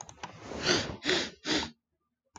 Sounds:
Sniff